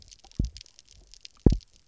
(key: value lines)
label: biophony, double pulse
recorder: SoundTrap 300